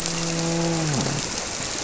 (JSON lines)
{"label": "biophony, grouper", "recorder": "SoundTrap 300"}